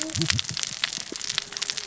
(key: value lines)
label: biophony, cascading saw
recorder: SoundTrap 600 or HydroMoth